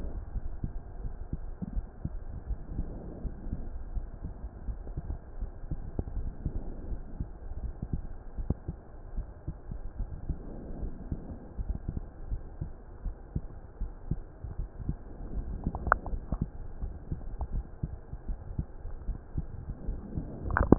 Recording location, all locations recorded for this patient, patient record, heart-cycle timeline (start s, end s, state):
pulmonary valve (PV)
aortic valve (AV)+pulmonary valve (PV)+tricuspid valve (TV)+mitral valve (MV)
#Age: nan
#Sex: Female
#Height: nan
#Weight: nan
#Pregnancy status: True
#Murmur: Absent
#Murmur locations: nan
#Most audible location: nan
#Systolic murmur timing: nan
#Systolic murmur shape: nan
#Systolic murmur grading: nan
#Systolic murmur pitch: nan
#Systolic murmur quality: nan
#Diastolic murmur timing: nan
#Diastolic murmur shape: nan
#Diastolic murmur grading: nan
#Diastolic murmur pitch: nan
#Diastolic murmur quality: nan
#Outcome: Normal
#Campaign: 2015 screening campaign
0.00	3.09	unannotated
3.09	3.22	diastole
3.22	3.34	S1
3.34	3.46	systole
3.46	3.60	S2
3.60	3.90	diastole
3.90	4.06	S1
4.06	4.24	systole
4.24	4.34	S2
4.34	4.66	diastole
4.66	4.80	S1
4.80	4.94	systole
4.94	5.06	S2
5.06	5.38	diastole
5.38	5.52	S1
5.52	5.70	systole
5.70	5.80	S2
5.80	6.14	diastole
6.14	6.32	S1
6.32	6.44	systole
6.44	6.54	S2
6.54	6.90	diastole
6.90	7.02	S1
7.02	7.18	systole
7.18	7.28	S2
7.28	7.62	diastole
7.62	7.74	S1
7.74	7.92	systole
7.92	8.06	S2
8.06	8.38	diastole
8.38	8.48	S1
8.48	8.68	systole
8.68	8.78	S2
8.78	9.14	diastole
9.14	9.26	S1
9.26	9.44	systole
9.44	9.56	S2
9.56	9.98	diastole
9.98	10.10	S1
10.10	10.24	systole
10.24	10.38	S2
10.38	10.76	diastole
10.76	10.90	S1
10.90	11.06	systole
11.06	11.20	S2
11.20	11.58	diastole
11.58	11.76	S1
11.76	11.86	systole
11.86	11.98	S2
11.98	12.30	diastole
12.30	12.42	S1
12.42	12.60	systole
12.60	12.72	S2
12.72	13.04	diastole
13.04	13.16	S1
13.16	13.32	systole
13.32	13.44	S2
13.44	13.80	diastole
13.80	13.94	S1
13.94	14.10	systole
14.10	14.22	S2
14.22	14.56	diastole
14.56	14.70	S1
14.70	14.86	systole
14.86	14.96	S2
14.96	15.20	diastole
15.20	15.32	S1
15.32	15.46	systole
15.46	15.58	S2
15.58	16.02	diastole
16.02	16.22	S1
16.22	16.37	systole
16.37	16.48	S2
16.48	16.80	diastole
16.80	16.94	S1
16.94	17.10	systole
17.10	17.22	S2
17.22	17.52	diastole
17.52	17.66	S1
17.66	17.81	systole
17.81	17.94	S2
17.94	18.28	diastole
18.28	18.38	S1
18.38	18.58	systole
18.58	18.68	S2
18.68	19.06	diastole
19.06	19.18	S1
19.18	19.35	systole
19.35	19.50	S2
19.50	19.84	diastole
19.84	20.00	S1
20.00	20.14	systole
20.14	20.78	unannotated